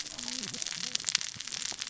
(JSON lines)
{"label": "biophony, cascading saw", "recorder": "SoundTrap 600 or HydroMoth"}